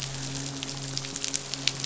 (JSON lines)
{"label": "biophony, midshipman", "recorder": "SoundTrap 500"}